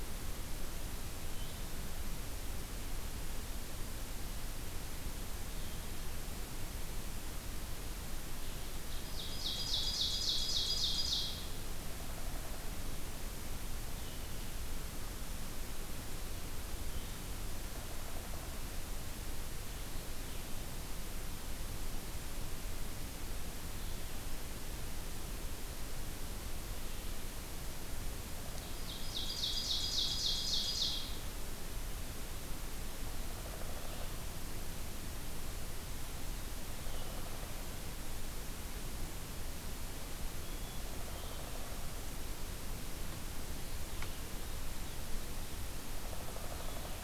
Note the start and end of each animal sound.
0.0s-47.0s: Blue-headed Vireo (Vireo solitarius)
9.1s-11.3s: Ovenbird (Seiurus aurocapilla)
28.7s-31.1s: Ovenbird (Seiurus aurocapilla)
33.2s-34.2s: Downy Woodpecker (Dryobates pubescens)
40.7s-41.8s: Downy Woodpecker (Dryobates pubescens)
45.8s-47.0s: Downy Woodpecker (Dryobates pubescens)

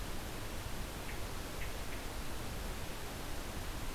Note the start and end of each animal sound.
0.9s-2.0s: Hermit Thrush (Catharus guttatus)

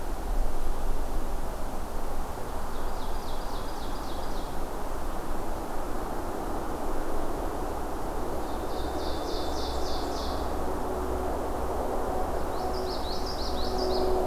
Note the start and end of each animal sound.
2.7s-4.7s: Ovenbird (Seiurus aurocapilla)
8.4s-10.5s: Ovenbird (Seiurus aurocapilla)
12.5s-14.3s: Common Yellowthroat (Geothlypis trichas)

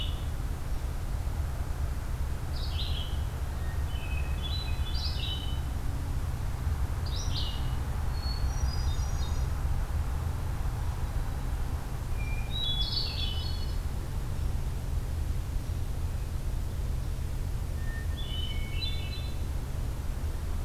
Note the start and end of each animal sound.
2.4s-8.0s: Red-eyed Vireo (Vireo olivaceus)
3.7s-5.8s: Hermit Thrush (Catharus guttatus)
7.9s-9.6s: Hermit Thrush (Catharus guttatus)
12.5s-14.1s: Hermit Thrush (Catharus guttatus)
12.6s-13.7s: Red-eyed Vireo (Vireo olivaceus)
17.5s-19.6s: Hermit Thrush (Catharus guttatus)

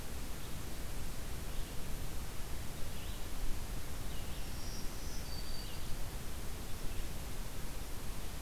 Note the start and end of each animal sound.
1.2s-5.9s: Red-eyed Vireo (Vireo olivaceus)
4.4s-5.9s: Black-throated Green Warbler (Setophaga virens)

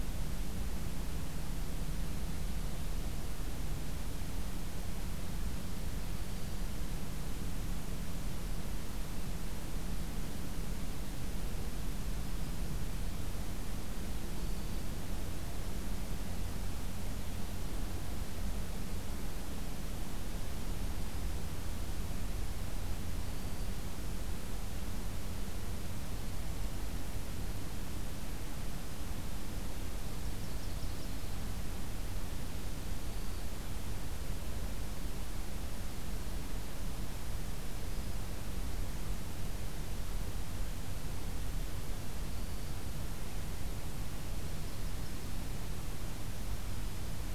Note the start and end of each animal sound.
6.0s-6.7s: Black-throated Green Warbler (Setophaga virens)
14.3s-14.9s: Black-throated Green Warbler (Setophaga virens)
23.1s-23.8s: Black-throated Green Warbler (Setophaga virens)
30.1s-31.4s: Yellow-rumped Warbler (Setophaga coronata)
32.8s-33.6s: Black-throated Green Warbler (Setophaga virens)
37.6s-38.3s: Black-throated Green Warbler (Setophaga virens)
42.2s-42.8s: Black-throated Green Warbler (Setophaga virens)
44.3s-45.4s: Yellow-rumped Warbler (Setophaga coronata)

